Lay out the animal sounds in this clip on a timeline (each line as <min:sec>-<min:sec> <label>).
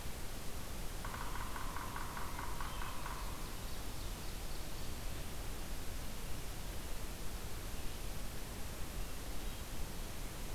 0:01.0-0:03.4 Yellow-bellied Sapsucker (Sphyrapicus varius)
0:03.2-0:05.0 Ovenbird (Seiurus aurocapilla)